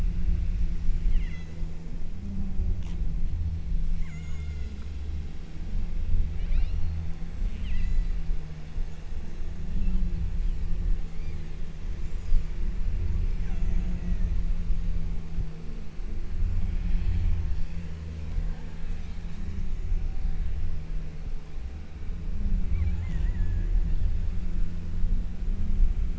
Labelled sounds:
1.2	2.0	killer whale, southern Alaska resident, 1.2 to 7.5 kHz
4.1	5.0	killer whale, southern Alaska resident, 0.59 to 7.9 kHz
6.4	7.1	killer whale, southern Alaska resident, 1.3 to 5.9 kHz
7.4	8.3	killer whale, southern Alaska resident, 1.7 to 8.0 kHz
11.1	11.8	killer whale, southern Alaska resident, 1.7 to 8.0 kHz
12.1	12.6	killer whale, southern Alaska resident, 4.0 to 8.0 kHz
13.5	14.4	killer whale, southern Alaska resident, 1.2 to 7.9 kHz

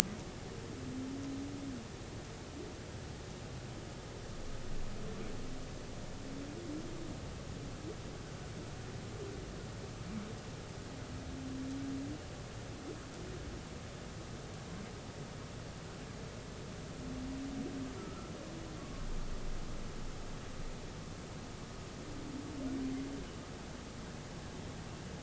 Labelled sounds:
18.0	19.1	humpback whale, 1.0 to 1.4 kHz

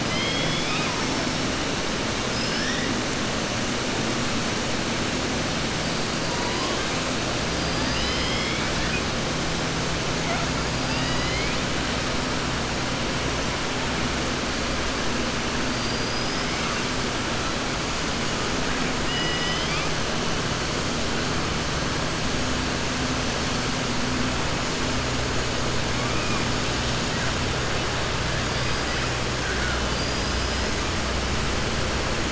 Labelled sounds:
0.0	1.0	killer whale, southern resident, 1.0 to 5.2 kHz
15.7	16.6	killer whale, southern resident, 4.6 to 5.6 kHz
19.0	19.9	killer whale, southern resident, 1.9 to 5.1 kHz

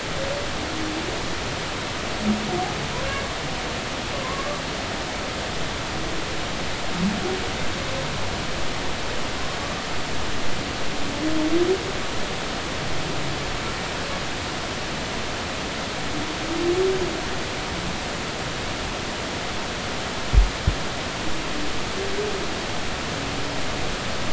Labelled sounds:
4.2	4.5	humpback whale, 0.99 to 1.2 kHz

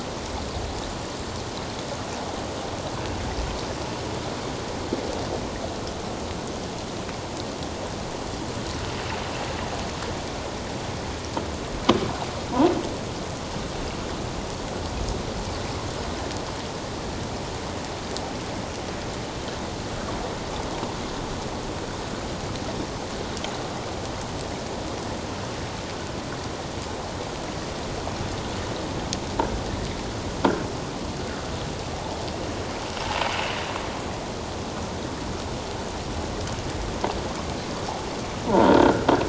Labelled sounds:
38.5	39.1	croaking sound likely from a nearby submerged object, 0.84 to 1.7 kHz

